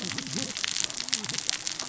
{"label": "biophony, cascading saw", "recorder": "SoundTrap 600 or HydroMoth"}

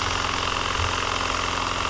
{"label": "anthrophony, boat engine", "recorder": "SoundTrap 300"}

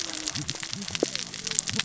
{"label": "biophony, cascading saw", "recorder": "SoundTrap 600 or HydroMoth"}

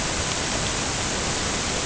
{"label": "ambient", "recorder": "HydroMoth"}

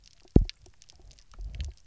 {"label": "biophony, double pulse", "recorder": "SoundTrap 300"}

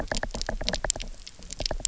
{"label": "biophony, knock", "recorder": "SoundTrap 300"}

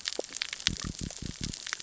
{"label": "biophony", "recorder": "SoundTrap 600 or HydroMoth"}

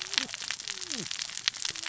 {"label": "biophony, cascading saw", "recorder": "SoundTrap 600 or HydroMoth"}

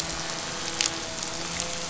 {"label": "anthrophony, boat engine", "recorder": "SoundTrap 500"}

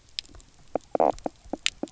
{"label": "biophony, knock croak", "recorder": "SoundTrap 300"}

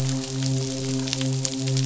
{"label": "biophony, midshipman", "recorder": "SoundTrap 500"}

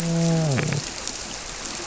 {"label": "biophony, grouper", "recorder": "SoundTrap 300"}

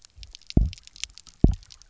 {"label": "biophony, double pulse", "recorder": "SoundTrap 300"}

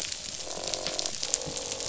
{"label": "biophony, croak", "recorder": "SoundTrap 500"}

